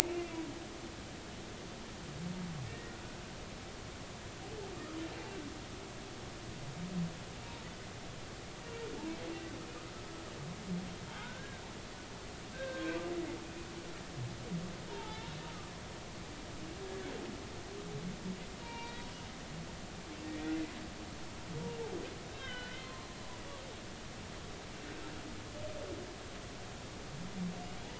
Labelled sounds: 0.0	0.4	humpback whale, 2.2 to 2.8 kHz
2.7	3.0	humpback whale, 1.8 to 1.9 kHz
11.2	11.6	humpback whale, 1.4 to 1.7 kHz
12.5	13.0	humpback whale, 1.5 to 1.7 kHz
14.9	15.3	humpback whale, 0.80 to 0.99 kHz
18.6	19.1	humpback whale, 0.90 to 3.9 kHz
20.2	20.6	humpback whale, 1.8 to 2.0 kHz
22.4	23.1	humpback whale, 0.99 to 3.3 kHz

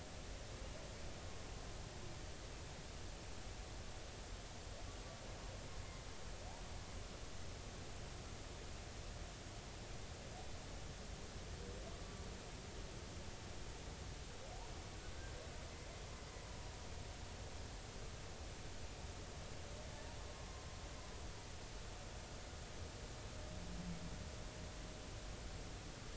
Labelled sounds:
19.9	20.8	humpback whale, 0.83 to 1.1 kHz

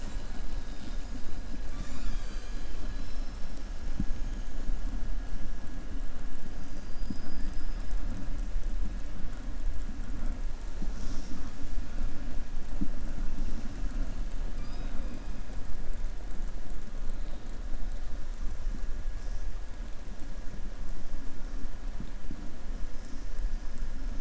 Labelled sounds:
6.6	7.9	killer whale, southern resident, 4.7 to 5.8 kHz

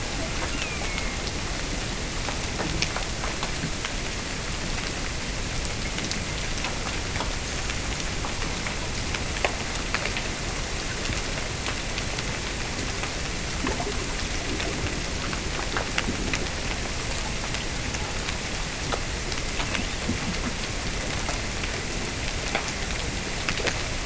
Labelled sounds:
0.4	1.3	killer whale, Bigg's (transient), Gulf of Alaska transient, 1.1 to 3.0 kHz

